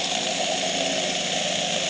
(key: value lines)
label: anthrophony, boat engine
recorder: HydroMoth